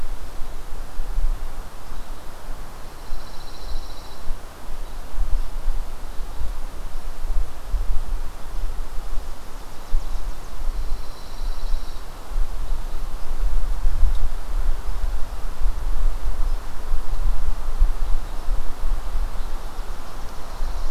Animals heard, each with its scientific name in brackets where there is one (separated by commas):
Pine Warbler (Setophaga pinus), Chipping Sparrow (Spizella passerina)